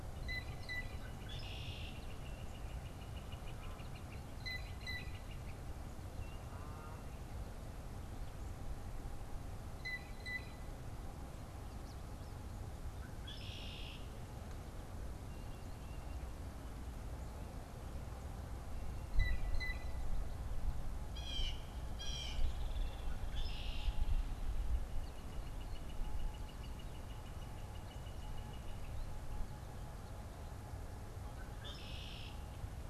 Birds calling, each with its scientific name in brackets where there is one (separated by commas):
Blue Jay (Cyanocitta cristata), Red-winged Blackbird (Agelaius phoeniceus), Northern Flicker (Colaptes auratus)